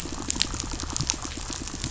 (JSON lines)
{"label": "biophony, pulse", "recorder": "SoundTrap 500"}